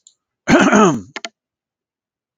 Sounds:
Throat clearing